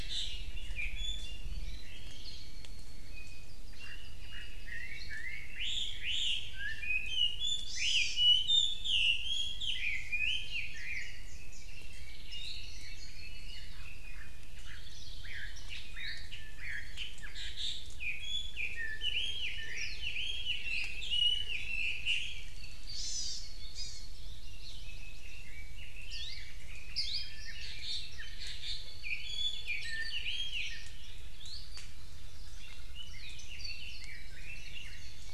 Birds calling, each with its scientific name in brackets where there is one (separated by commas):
Chinese Hwamei (Garrulax canorus), Hawaii Creeper (Loxops mana), Hawaii Akepa (Loxops coccineus), Warbling White-eye (Zosterops japonicus), Red-billed Leiothrix (Leiothrix lutea), Apapane (Himatione sanguinea), Hawaii Amakihi (Chlorodrepanis virens)